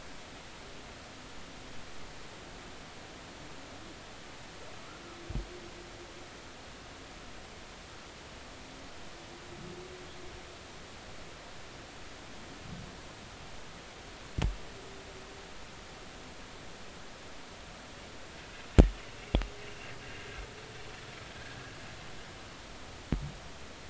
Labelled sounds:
18.4	18.7	humpback whale, 2.5 to 2.7 kHz

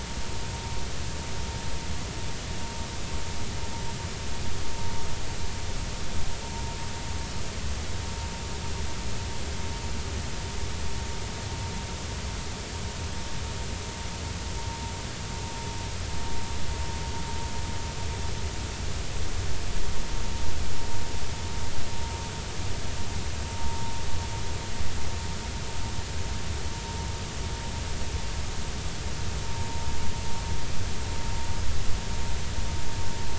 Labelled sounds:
23.5	23.8	vessel noise, 0.86 to 0.96 kHz

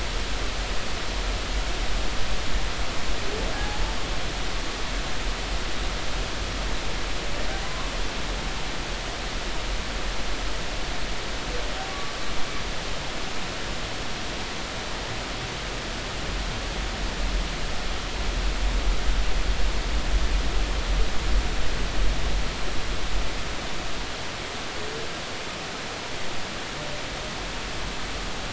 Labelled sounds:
3.5	3.8	humpback whale, 0.80 to 0.90 kHz
7.6	7.9	humpback whale, 0.99 to 1.2 kHz

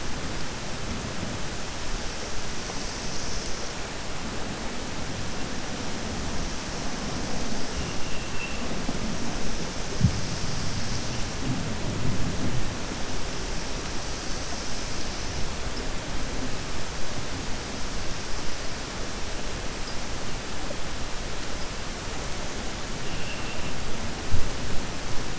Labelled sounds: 23.2	23.7	vessel noise, 2.4 to 3.2 kHz

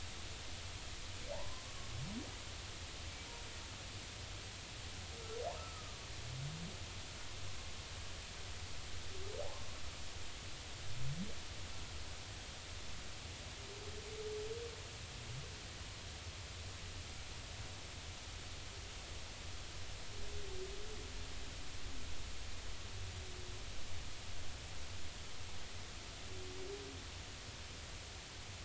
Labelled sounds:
1.3	1.9	humpback whale, 0.80 to 1.2 kHz
5.6	5.8	humpback whale, 1.2 to 1.4 kHz

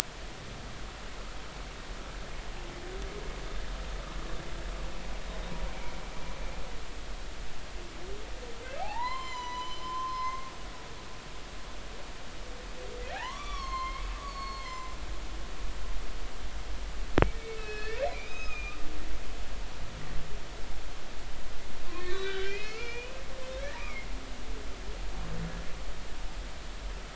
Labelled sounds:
8.8	10.7	humpback whale, 0.80 to 7.3 kHz
13.1	14.9	humpback whale, 0.80 to 6.6 kHz
17.2	18.8	humpback whale, 1.2 to 6.5 kHz
21.9	23.2	humpback whale, 0.99 to 4.5 kHz
23.8	24.1	humpback whale, 2.0 to 2.6 kHz

